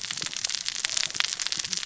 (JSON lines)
{"label": "biophony, cascading saw", "recorder": "SoundTrap 600 or HydroMoth"}